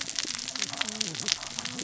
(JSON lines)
{"label": "biophony, cascading saw", "recorder": "SoundTrap 600 or HydroMoth"}